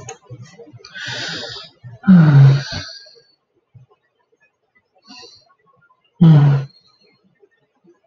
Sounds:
Sigh